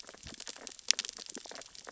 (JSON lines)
{"label": "biophony, sea urchins (Echinidae)", "recorder": "SoundTrap 600 or HydroMoth"}